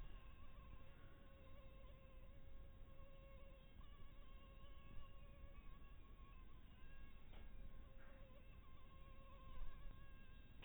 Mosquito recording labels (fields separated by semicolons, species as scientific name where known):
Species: mosquito; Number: one; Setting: cup